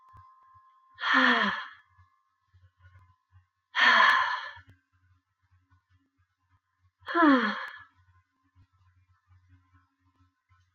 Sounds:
Sigh